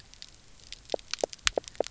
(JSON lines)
{"label": "biophony, knock croak", "recorder": "SoundTrap 300"}